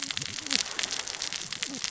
{"label": "biophony, cascading saw", "recorder": "SoundTrap 600 or HydroMoth"}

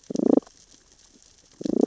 {"label": "biophony, damselfish", "recorder": "SoundTrap 600 or HydroMoth"}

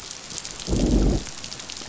{"label": "biophony, growl", "recorder": "SoundTrap 500"}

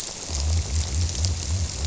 {"label": "biophony", "recorder": "SoundTrap 300"}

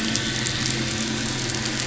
{"label": "anthrophony, boat engine", "recorder": "SoundTrap 500"}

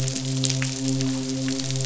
{"label": "biophony, midshipman", "recorder": "SoundTrap 500"}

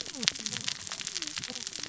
{"label": "biophony, cascading saw", "recorder": "SoundTrap 600 or HydroMoth"}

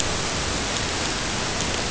{"label": "ambient", "recorder": "HydroMoth"}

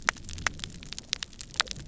{"label": "biophony", "recorder": "SoundTrap 300"}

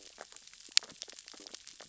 {"label": "biophony, stridulation", "recorder": "SoundTrap 600 or HydroMoth"}
{"label": "biophony, sea urchins (Echinidae)", "recorder": "SoundTrap 600 or HydroMoth"}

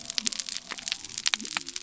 {"label": "biophony", "recorder": "SoundTrap 300"}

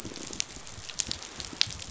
{"label": "biophony", "recorder": "SoundTrap 500"}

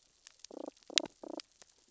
{"label": "biophony, damselfish", "recorder": "SoundTrap 600 or HydroMoth"}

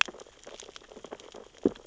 {"label": "biophony, sea urchins (Echinidae)", "recorder": "SoundTrap 600 or HydroMoth"}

